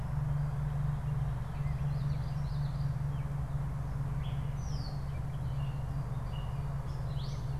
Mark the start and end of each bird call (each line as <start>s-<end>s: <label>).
1.8s-3.0s: Common Yellowthroat (Geothlypis trichas)
4.0s-7.6s: Gray Catbird (Dumetella carolinensis)